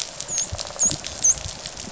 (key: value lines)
label: biophony, dolphin
recorder: SoundTrap 500